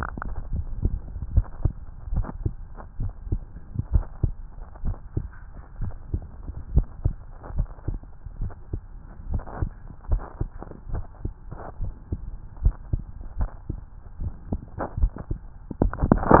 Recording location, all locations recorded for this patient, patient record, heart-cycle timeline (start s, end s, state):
tricuspid valve (TV)
aortic valve (AV)+pulmonary valve (PV)+tricuspid valve (TV)+mitral valve (MV)
#Age: Child
#Sex: Male
#Height: 133.0 cm
#Weight: 26.3 kg
#Pregnancy status: False
#Murmur: Absent
#Murmur locations: nan
#Most audible location: nan
#Systolic murmur timing: nan
#Systolic murmur shape: nan
#Systolic murmur grading: nan
#Systolic murmur pitch: nan
#Systolic murmur quality: nan
#Diastolic murmur timing: nan
#Diastolic murmur shape: nan
#Diastolic murmur grading: nan
#Diastolic murmur pitch: nan
#Diastolic murmur quality: nan
#Outcome: Abnormal
#Campaign: 2015 screening campaign
0.00	1.76	unannotated
1.76	2.10	diastole
2.10	2.26	S1
2.26	2.40	systole
2.40	2.54	S2
2.54	2.98	diastole
2.98	3.12	S1
3.12	3.26	systole
3.26	3.40	S2
3.40	3.90	diastole
3.90	4.08	S1
4.08	4.22	systole
4.22	4.36	S2
4.36	4.82	diastole
4.82	4.96	S1
4.96	5.16	systole
5.16	5.30	S2
5.30	5.78	diastole
5.78	5.94	S1
5.94	6.12	systole
6.12	6.24	S2
6.24	6.68	diastole
6.68	6.86	S1
6.86	7.04	systole
7.04	7.18	S2
7.18	7.54	diastole
7.54	7.68	S1
7.68	7.86	systole
7.86	8.00	S2
8.00	8.38	diastole
8.38	8.52	S1
8.52	8.72	systole
8.72	8.82	S2
8.82	9.28	diastole
9.28	9.42	S1
9.42	9.60	systole
9.60	9.70	S2
9.70	10.08	diastole
10.08	10.22	S1
10.22	10.40	systole
10.40	10.50	S2
10.50	10.92	diastole
10.92	11.04	S1
11.04	11.24	systole
11.24	11.34	S2
11.34	11.80	diastole
11.80	11.94	S1
11.94	12.08	systole
12.08	12.20	S2
12.20	12.62	diastole
12.62	12.76	S1
12.76	12.92	systole
12.92	13.02	S2
13.02	13.38	diastole
13.38	13.50	S1
13.50	13.68	systole
13.68	13.80	S2
13.80	14.20	diastole
14.20	14.34	S1
14.34	14.50	systole
14.50	14.60	S2
14.60	14.98	diastole
14.98	15.16	S1
15.16	15.29	systole
15.29	15.39	S2
15.39	15.68	diastole
15.68	16.40	unannotated